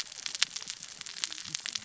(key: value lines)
label: biophony, cascading saw
recorder: SoundTrap 600 or HydroMoth